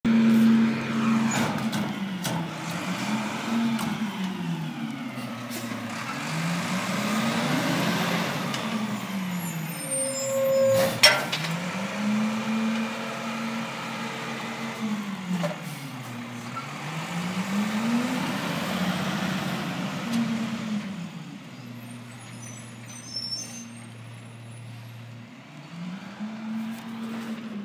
Are there people talking on a bus?
no